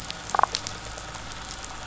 {"label": "biophony, damselfish", "recorder": "SoundTrap 500"}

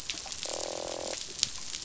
{"label": "biophony, croak", "recorder": "SoundTrap 500"}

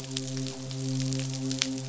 {"label": "biophony, midshipman", "recorder": "SoundTrap 500"}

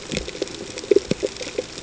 {"label": "ambient", "recorder": "HydroMoth"}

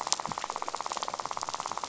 {"label": "biophony, rattle", "recorder": "SoundTrap 500"}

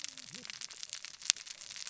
{"label": "biophony, cascading saw", "recorder": "SoundTrap 600 or HydroMoth"}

